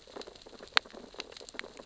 {"label": "biophony, sea urchins (Echinidae)", "recorder": "SoundTrap 600 or HydroMoth"}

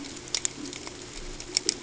{"label": "ambient", "recorder": "HydroMoth"}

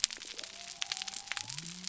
{"label": "biophony", "recorder": "SoundTrap 300"}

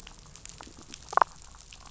{"label": "biophony, damselfish", "recorder": "SoundTrap 500"}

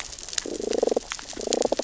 {"label": "biophony, damselfish", "recorder": "SoundTrap 600 or HydroMoth"}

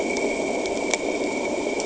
{"label": "anthrophony, boat engine", "recorder": "HydroMoth"}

